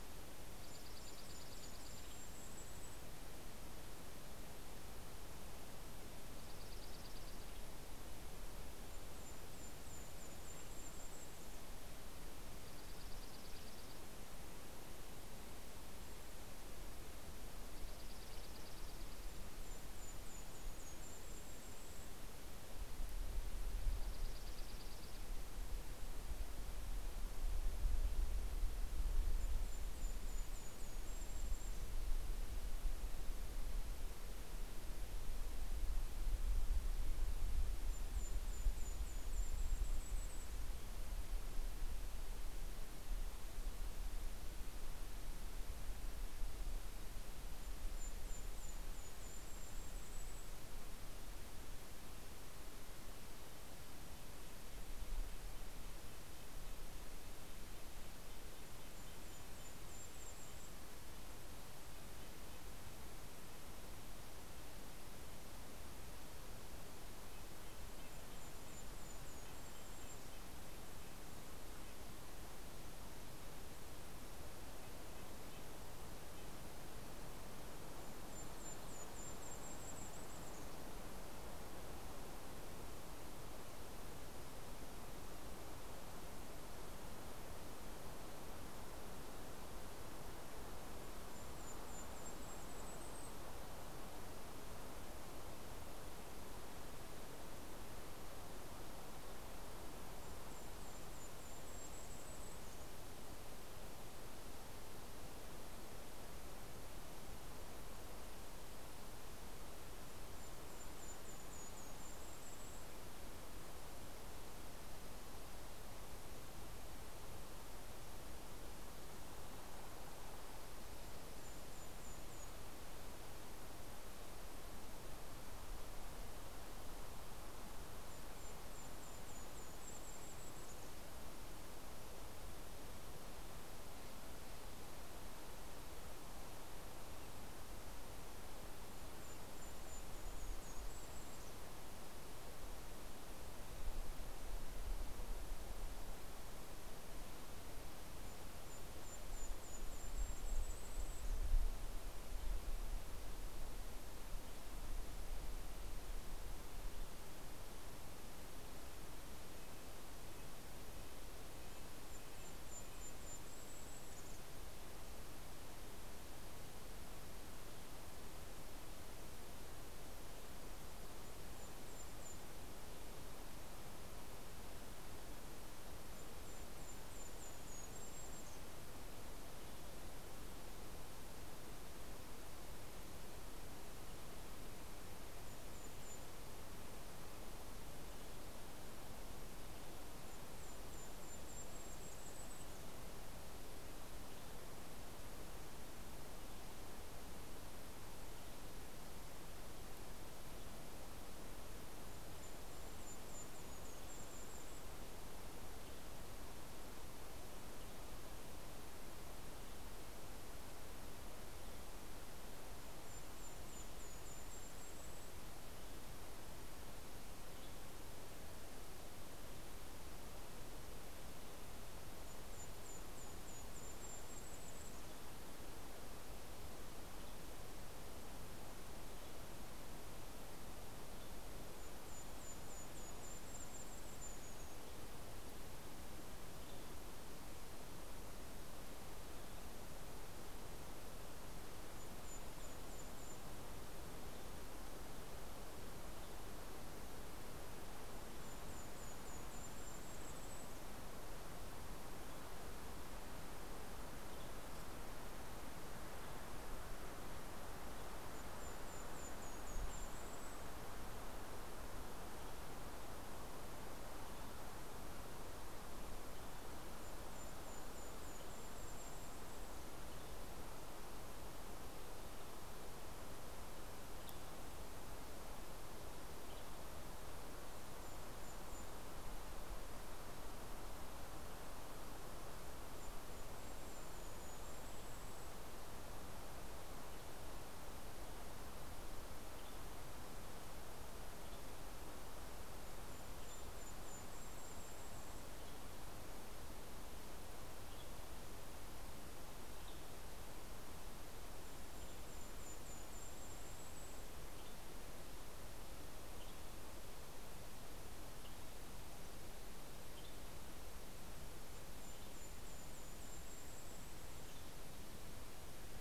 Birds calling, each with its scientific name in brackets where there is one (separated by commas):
Dark-eyed Junco (Junco hyemalis), Golden-crowned Kinglet (Regulus satrapa), Western Tanager (Piranga ludoviciana), Red-breasted Nuthatch (Sitta canadensis)